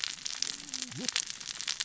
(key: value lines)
label: biophony, cascading saw
recorder: SoundTrap 600 or HydroMoth